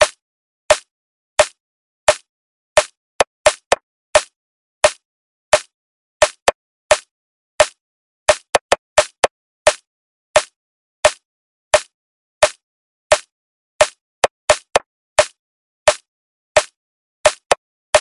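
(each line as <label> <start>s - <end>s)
The drum kicks sound unnatural and synthetic, repeating with varied rhythmic patterns. 0.0s - 17.6s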